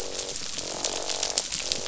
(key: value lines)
label: biophony, croak
recorder: SoundTrap 500